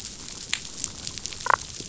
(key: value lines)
label: biophony, damselfish
recorder: SoundTrap 500